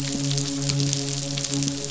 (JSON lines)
{"label": "biophony, midshipman", "recorder": "SoundTrap 500"}